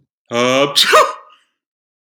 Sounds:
Sneeze